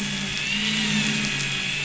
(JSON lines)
{"label": "anthrophony, boat engine", "recorder": "SoundTrap 500"}